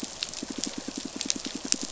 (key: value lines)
label: biophony, pulse
recorder: SoundTrap 500